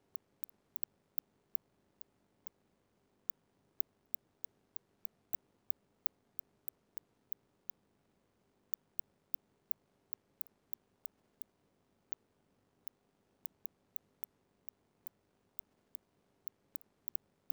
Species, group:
Cyrtaspis scutata, Orthoptera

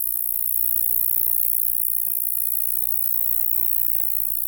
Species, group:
Roeseliana ambitiosa, Orthoptera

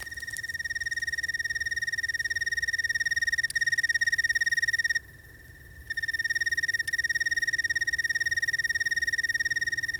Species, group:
Oecanthus californicus, Orthoptera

